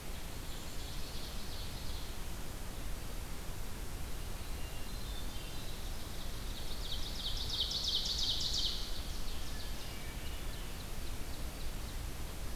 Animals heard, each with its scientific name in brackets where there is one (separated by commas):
Hermit Thrush (Catharus guttatus), Black-capped Chickadee (Poecile atricapillus), Ovenbird (Seiurus aurocapilla)